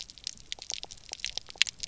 {"label": "biophony, pulse", "recorder": "SoundTrap 300"}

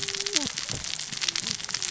{"label": "biophony, cascading saw", "recorder": "SoundTrap 600 or HydroMoth"}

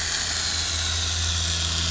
{"label": "anthrophony, boat engine", "recorder": "SoundTrap 500"}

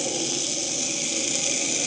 {"label": "anthrophony, boat engine", "recorder": "HydroMoth"}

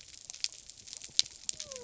{"label": "biophony", "recorder": "SoundTrap 300"}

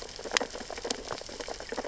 {"label": "biophony, sea urchins (Echinidae)", "recorder": "SoundTrap 600 or HydroMoth"}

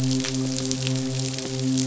{"label": "biophony, midshipman", "recorder": "SoundTrap 500"}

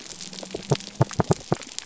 {"label": "biophony", "recorder": "SoundTrap 300"}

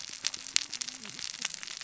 {"label": "biophony, cascading saw", "recorder": "SoundTrap 600 or HydroMoth"}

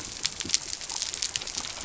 {"label": "biophony", "recorder": "SoundTrap 300"}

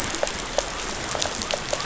{"label": "biophony", "recorder": "SoundTrap 500"}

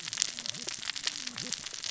{"label": "biophony, cascading saw", "recorder": "SoundTrap 600 or HydroMoth"}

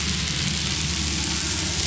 {"label": "anthrophony, boat engine", "recorder": "SoundTrap 500"}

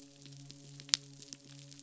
{"label": "biophony", "recorder": "SoundTrap 500"}
{"label": "biophony, midshipman", "recorder": "SoundTrap 500"}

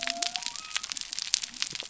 {"label": "biophony", "recorder": "SoundTrap 300"}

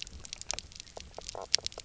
{"label": "biophony, knock croak", "recorder": "SoundTrap 300"}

